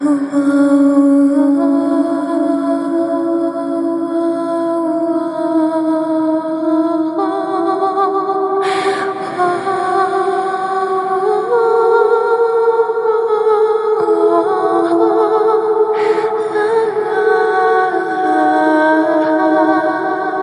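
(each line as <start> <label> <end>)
0.2 A mermaid is singing. 20.4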